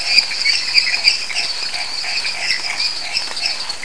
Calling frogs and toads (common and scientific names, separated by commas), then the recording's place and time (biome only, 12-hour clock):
Elachistocleis matogrosso, lesser tree frog (Dendropsophus minutus), dwarf tree frog (Dendropsophus nanus), Pithecopus azureus, Chaco tree frog (Boana raniceps)
Cerrado, 9:15pm